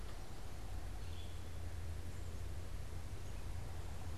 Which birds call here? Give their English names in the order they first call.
Red-eyed Vireo